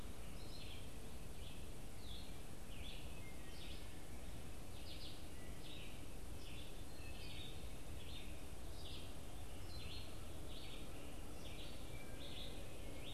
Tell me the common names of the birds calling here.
Red-eyed Vireo, Wood Thrush